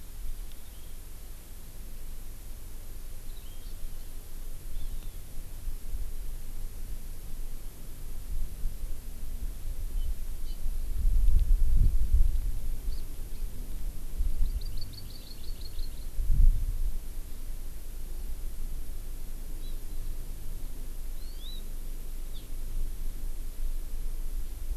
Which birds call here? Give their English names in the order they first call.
Hawaii Amakihi